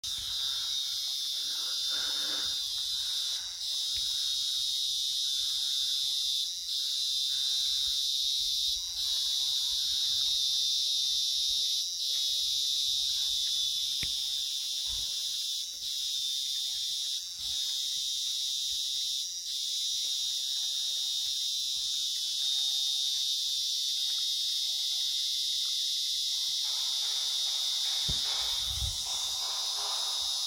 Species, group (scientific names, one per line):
Psaltoda plaga
Cicadidae